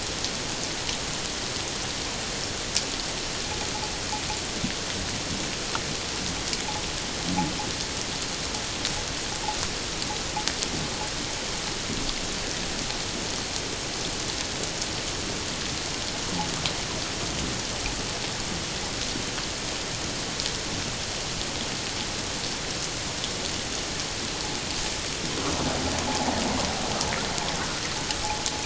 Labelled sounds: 25.6	26.3	vessel noise, 0.78 to 0.97 kHz
27.5	27.8	vessel noise, 1.2 to 1.6 kHz

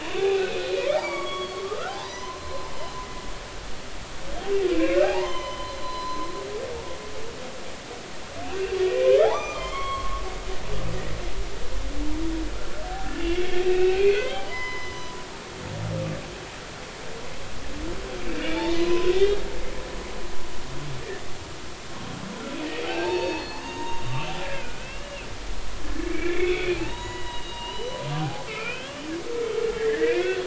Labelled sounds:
0.0	2.7	humpback whale, 0.80 to 6.2 kHz
5.0	6.3	humpback whale, 0.80 to 6.3 kHz
8.8	10.2	humpback whale, 0.80 to 6.1 kHz
13.6	15.2	humpback whale, 0.83 to 6.1 kHz
18.4	19.1	humpback whale, 0.83 to 3.7 kHz
22.9	24.0	humpback whale, 0.83 to 6.6 kHz
24.4	25.3	humpback whale, 1.4 to 2.9 kHz
26.0	29.0	humpback whale, 0.80 to 6.9 kHz
29.8	30.4	humpback whale, 1.5 to 3.5 kHz

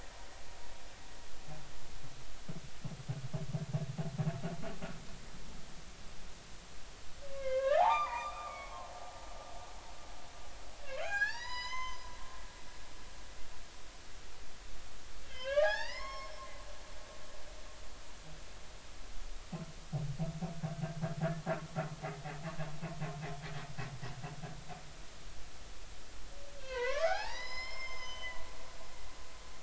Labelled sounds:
7.3	8.9	humpback whale, 0.80 to 3.7 kHz
11.0	12.1	humpback whale, 0.80 to 7.2 kHz
15.2	16.3	humpback whale, 0.80 to 5.5 kHz
20.7	21.0	humpback whale, 1.5 to 1.6 kHz
26.6	29.1	humpback whale, 0.80 to 7.4 kHz

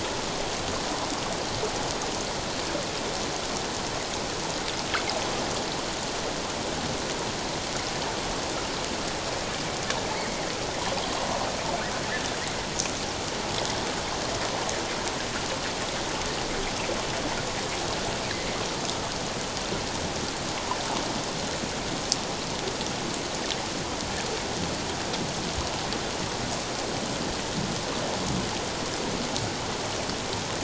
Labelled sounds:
10.1	10.5	humpback whale, 1.8 to 2.3 kHz

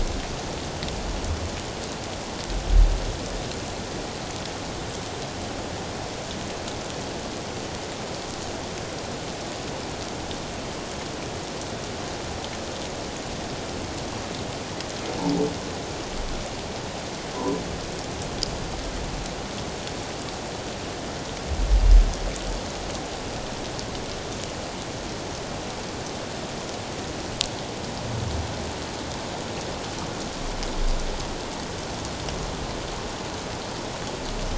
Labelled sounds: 17.3	17.6	humpback whale, 0.88 to 1.1 kHz

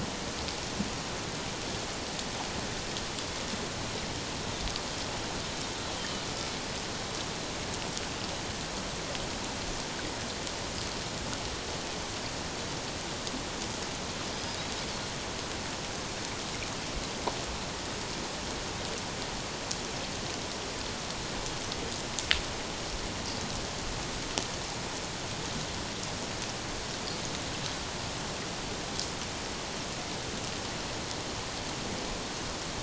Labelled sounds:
6.0	6.2	Pacific white-sided dolphin, 2.9 to 3.2 kHz

